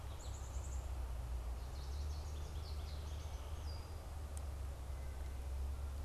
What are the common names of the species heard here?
American Goldfinch, Black-capped Chickadee, Red-winged Blackbird